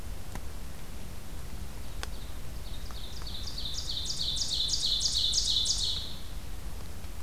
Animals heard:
Ovenbird (Seiurus aurocapilla)

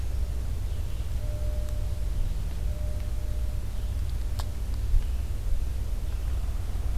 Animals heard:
Red-eyed Vireo (Vireo olivaceus)

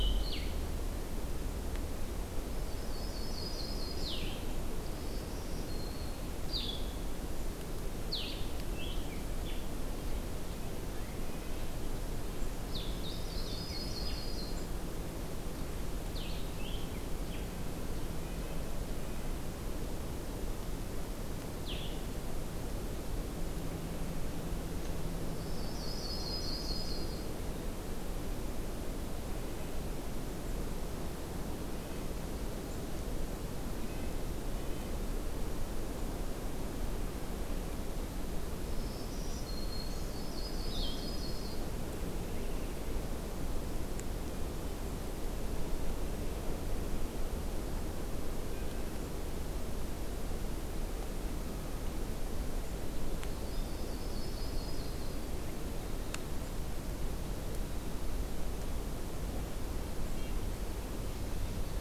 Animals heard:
Black-throated Green Warbler (Setophaga virens)
Yellow-rumped Warbler (Setophaga coronata)
Red-breasted Nuthatch (Sitta canadensis)
Blue-headed Vireo (Vireo solitarius)

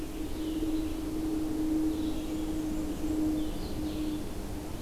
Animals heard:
Red-eyed Vireo (Vireo olivaceus)
Blue-headed Vireo (Vireo solitarius)
Blackburnian Warbler (Setophaga fusca)

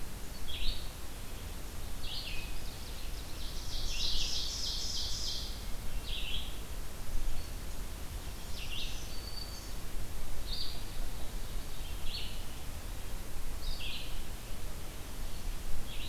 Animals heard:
Ovenbird (Seiurus aurocapilla)
Black-throated Green Warbler (Setophaga virens)
Red-eyed Vireo (Vireo olivaceus)

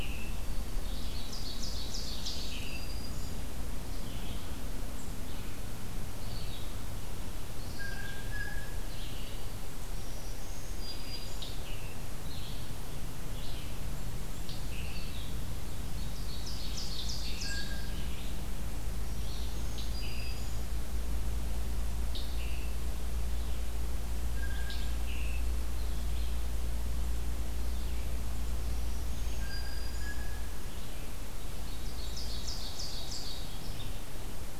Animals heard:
Red-eyed Vireo (Vireo olivaceus)
Black-throated Green Warbler (Setophaga virens)
Scarlet Tanager (Piranga olivacea)
Blue Jay (Cyanocitta cristata)
Ovenbird (Seiurus aurocapilla)

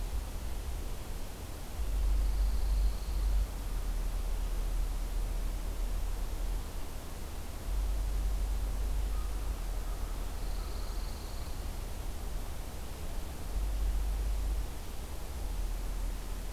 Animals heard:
Pine Warbler (Setophaga pinus)
American Crow (Corvus brachyrhynchos)

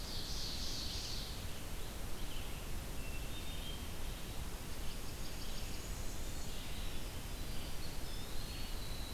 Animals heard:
Ovenbird (Seiurus aurocapilla)
Eastern Wood-Pewee (Contopus virens)
Winter Wren (Troglodytes hiemalis)
Red-eyed Vireo (Vireo olivaceus)
Hermit Thrush (Catharus guttatus)
Blackburnian Warbler (Setophaga fusca)

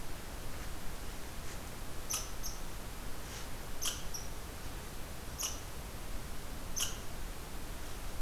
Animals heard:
Red Squirrel (Tamiasciurus hudsonicus)

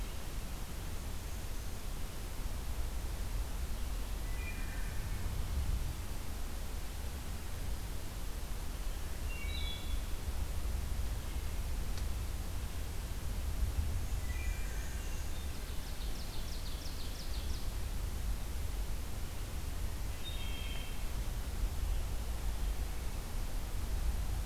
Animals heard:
Wood Thrush (Hylocichla mustelina)
Black-and-white Warbler (Mniotilta varia)
Ovenbird (Seiurus aurocapilla)

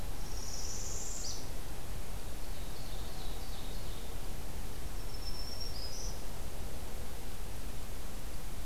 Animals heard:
Ovenbird (Seiurus aurocapilla)
Northern Parula (Setophaga americana)
Black-throated Green Warbler (Setophaga virens)

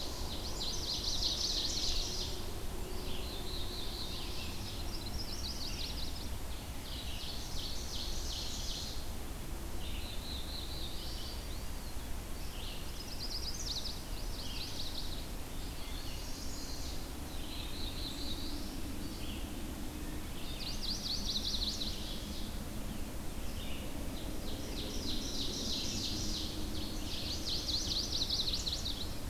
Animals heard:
Black-throated Blue Warbler (Setophaga caerulescens)
Eastern Wood-Pewee (Contopus virens)
Northern Parula (Setophaga americana)
Wood Thrush (Hylocichla mustelina)
Chestnut-sided Warbler (Setophaga pensylvanica)
Red-eyed Vireo (Vireo olivaceus)
Ovenbird (Seiurus aurocapilla)

